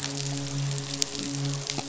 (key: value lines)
label: biophony, midshipman
recorder: SoundTrap 500